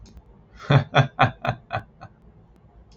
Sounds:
Laughter